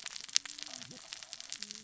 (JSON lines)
{"label": "biophony, cascading saw", "recorder": "SoundTrap 600 or HydroMoth"}